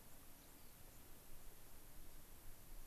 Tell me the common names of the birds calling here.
White-crowned Sparrow, Rock Wren